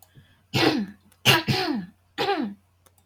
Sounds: Throat clearing